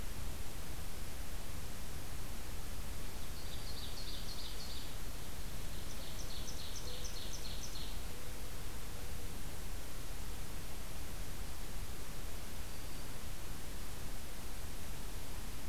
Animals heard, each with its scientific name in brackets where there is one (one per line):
Ovenbird (Seiurus aurocapilla)
Black-throated Green Warbler (Setophaga virens)
Mourning Dove (Zenaida macroura)